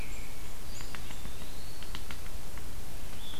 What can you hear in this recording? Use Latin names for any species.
Catharus fuscescens, Contopus virens, Sphyrapicus varius